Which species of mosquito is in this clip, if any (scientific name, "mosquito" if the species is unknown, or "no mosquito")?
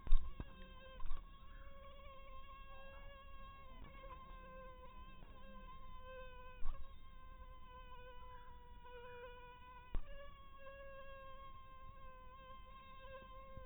mosquito